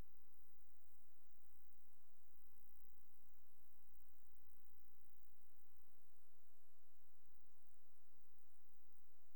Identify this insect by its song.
Poecilimon jonicus, an orthopteran